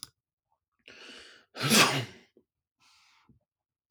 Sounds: Sneeze